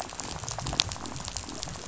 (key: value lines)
label: biophony, rattle
recorder: SoundTrap 500